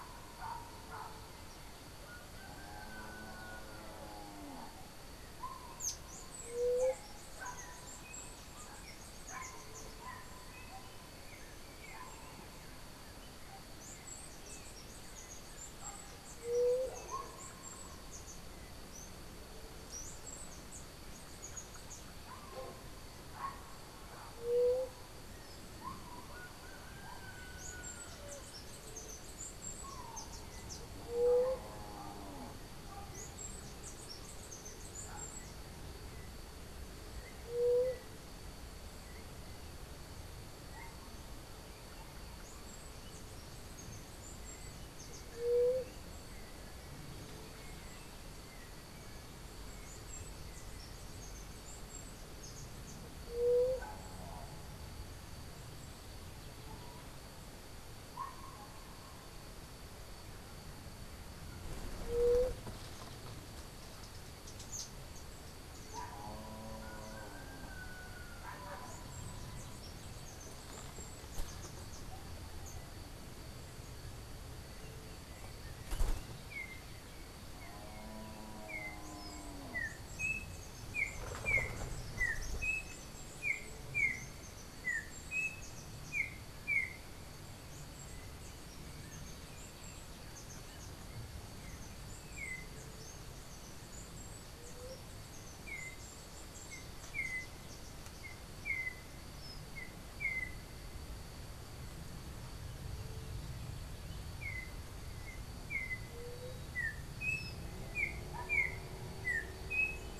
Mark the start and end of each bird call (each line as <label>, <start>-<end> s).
Chestnut-capped Brushfinch (Arremon brunneinucha), 5.7-10.3 s
White-tipped Dove (Leptotila verreauxi), 6.5-7.1 s
Chestnut-capped Brushfinch (Arremon brunneinucha), 13.7-22.2 s
White-tipped Dove (Leptotila verreauxi), 16.4-17.0 s
White-tipped Dove (Leptotila verreauxi), 24.3-25.0 s
Chestnut-capped Brushfinch (Arremon brunneinucha), 27.5-35.7 s
White-tipped Dove (Leptotila verreauxi), 31.1-31.7 s
White-tipped Dove (Leptotila verreauxi), 37.5-38.1 s
Chestnut-capped Brushfinch (Arremon brunneinucha), 42.3-45.5 s
White-tipped Dove (Leptotila verreauxi), 45.3-45.9 s
White-tipped Dove (Leptotila verreauxi), 53.3-53.9 s
White-tipped Dove (Leptotila verreauxi), 62.1-62.6 s
Chestnut-capped Brushfinch (Arremon brunneinucha), 68.6-72.1 s
Yellow-backed Oriole (Icterus chrysater), 76.3-87.2 s
Chestnut-capped Brushfinch (Arremon brunneinucha), 78.9-95.7 s
Yellow-backed Oriole (Icterus chrysater), 95.6-110.2 s